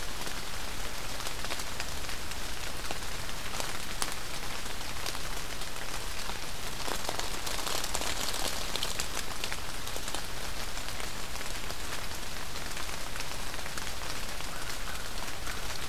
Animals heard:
forest ambience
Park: Marsh-Billings-Rockefeller National Historical Park